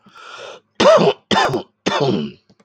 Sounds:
Cough